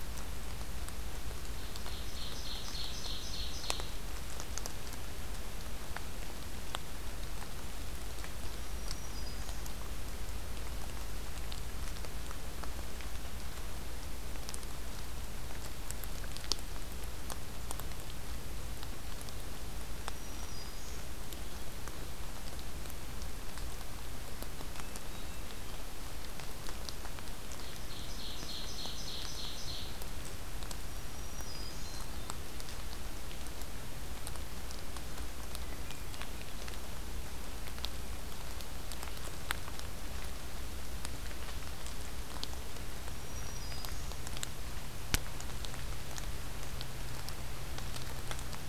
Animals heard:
Ovenbird (Seiurus aurocapilla)
Black-throated Green Warbler (Setophaga virens)

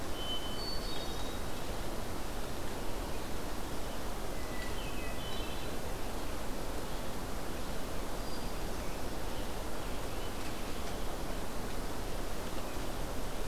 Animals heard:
Scarlet Tanager (Piranga olivacea)
Hermit Thrush (Catharus guttatus)

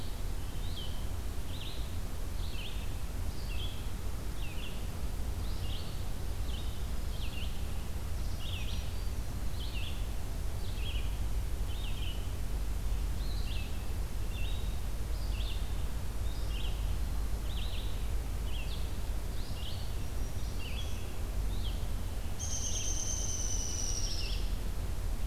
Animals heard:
Downy Woodpecker (Dryobates pubescens)
Red-eyed Vireo (Vireo olivaceus)
Black-throated Green Warbler (Setophaga virens)

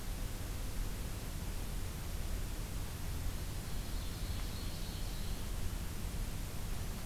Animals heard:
Ovenbird (Seiurus aurocapilla)

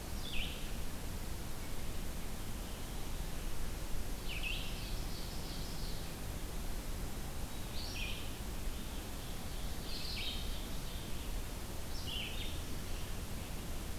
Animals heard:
Ovenbird (Seiurus aurocapilla)
Red-eyed Vireo (Vireo olivaceus)

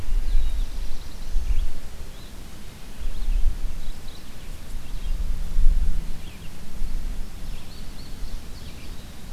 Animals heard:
Black-throated Blue Warbler (Setophaga caerulescens)
Red-eyed Vireo (Vireo olivaceus)

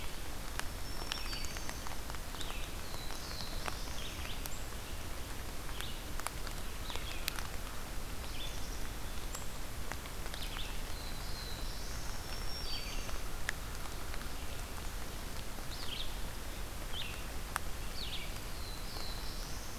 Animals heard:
Black-throated Green Warbler (Setophaga virens)
Black-capped Chickadee (Poecile atricapillus)
Black-throated Blue Warbler (Setophaga caerulescens)
Red-eyed Vireo (Vireo olivaceus)

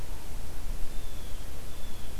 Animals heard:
Blue Jay (Cyanocitta cristata)

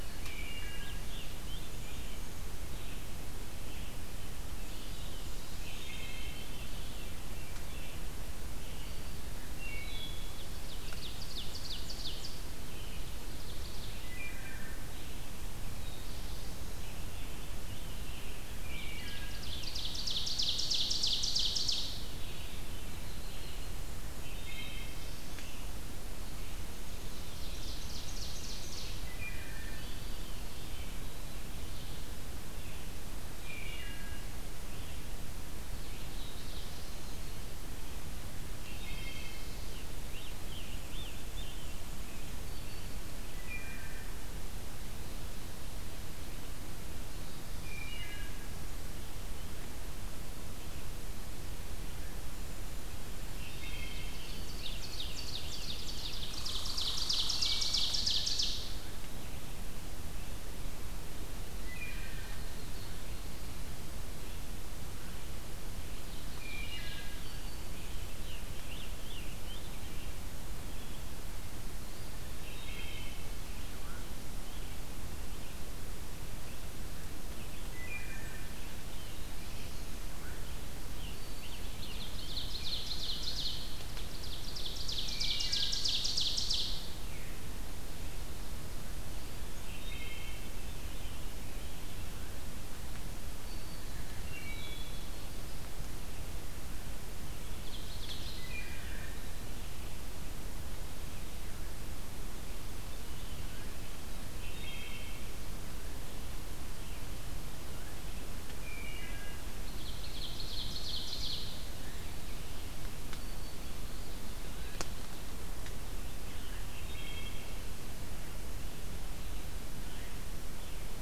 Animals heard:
Red Squirrel (Tamiasciurus hudsonicus)
Veery (Catharus fuscescens)
Scarlet Tanager (Piranga olivacea)
Wood Thrush (Hylocichla mustelina)
Red-eyed Vireo (Vireo olivaceus)
Ovenbird (Seiurus aurocapilla)
Yellow-rumped Warbler (Setophaga coronata)
Black-throated Blue Warbler (Setophaga caerulescens)
Black-throated Green Warbler (Setophaga virens)

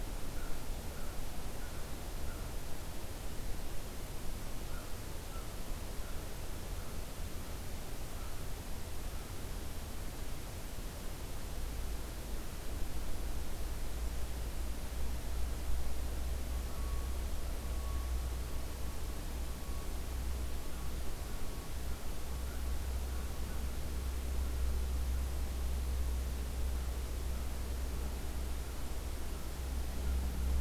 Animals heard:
American Crow (Corvus brachyrhynchos)

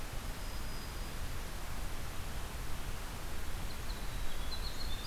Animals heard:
Black-throated Green Warbler (Setophaga virens)
Winter Wren (Troglodytes hiemalis)

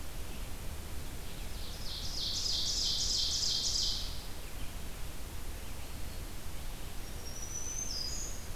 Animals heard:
Black-throated Green Warbler (Setophaga virens)
Ovenbird (Seiurus aurocapilla)

